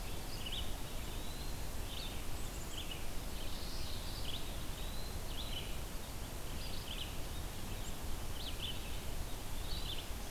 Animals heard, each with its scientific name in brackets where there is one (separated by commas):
Common Yellowthroat (Geothlypis trichas), Indigo Bunting (Passerina cyanea), Eastern Wood-Pewee (Contopus virens), Red-eyed Vireo (Vireo olivaceus)